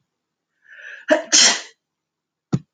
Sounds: Sneeze